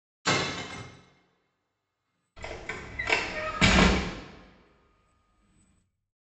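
At 0.25 seconds, the sound of glass is heard. Next, at 2.36 seconds, a window opens.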